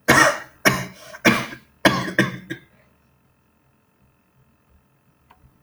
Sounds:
Cough